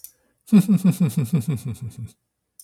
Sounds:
Laughter